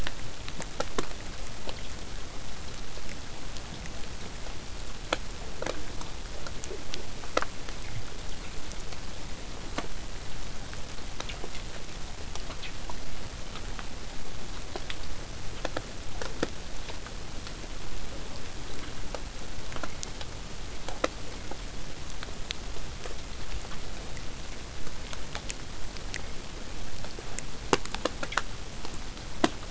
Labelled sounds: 24.7	29.7	vessel noise, 0 to 8.0 kHz

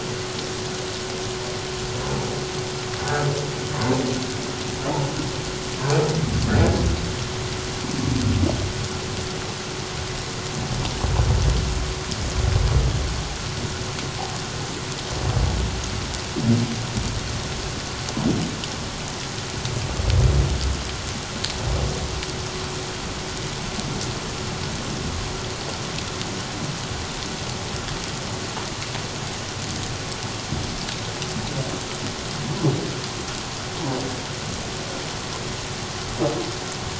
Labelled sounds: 6.5	6.8	humpback whale, 1.6 to 1.8 kHz

